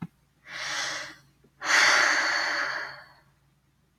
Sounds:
Sigh